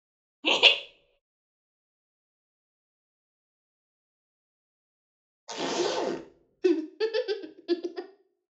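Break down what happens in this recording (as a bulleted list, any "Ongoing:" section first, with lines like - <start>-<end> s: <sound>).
- 0.4-0.7 s: laughter is heard
- 5.5-6.2 s: the sound of a zipper
- 6.6-8.0 s: there is laughter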